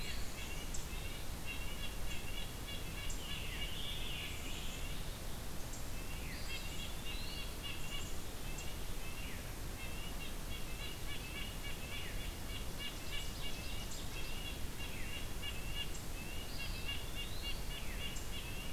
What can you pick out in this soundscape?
Black-capped Chickadee, Red-breasted Nuthatch, Scarlet Tanager, Veery, Eastern Wood-Pewee, Ovenbird